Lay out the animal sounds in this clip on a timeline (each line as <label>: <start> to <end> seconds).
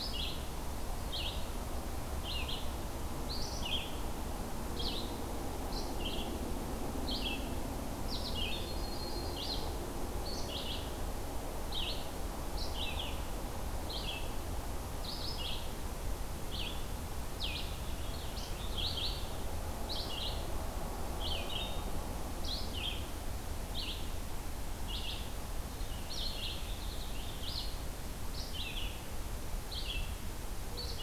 Red-eyed Vireo (Vireo olivaceus): 0.0 to 8.8 seconds
Yellow-rumped Warbler (Setophaga coronata): 0.4 to 1.6 seconds
Yellow-rumped Warbler (Setophaga coronata): 8.4 to 9.7 seconds
Red-eyed Vireo (Vireo olivaceus): 9.2 to 31.0 seconds
Purple Finch (Haemorhous purpureus): 17.5 to 19.1 seconds
Purple Finch (Haemorhous purpureus): 25.6 to 27.4 seconds